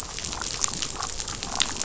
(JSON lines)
{"label": "biophony, rattle response", "recorder": "SoundTrap 500"}